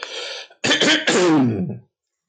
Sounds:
Throat clearing